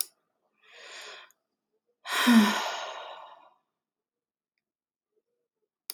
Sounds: Sigh